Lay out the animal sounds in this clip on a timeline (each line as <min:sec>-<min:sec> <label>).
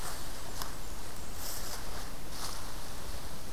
0:00.0-0:01.5 Blackburnian Warbler (Setophaga fusca)